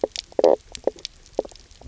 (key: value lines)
label: biophony, knock croak
recorder: SoundTrap 300